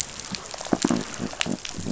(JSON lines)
{"label": "biophony", "recorder": "SoundTrap 500"}
{"label": "biophony, rattle response", "recorder": "SoundTrap 500"}